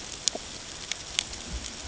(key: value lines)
label: ambient
recorder: HydroMoth